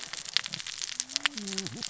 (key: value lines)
label: biophony, cascading saw
recorder: SoundTrap 600 or HydroMoth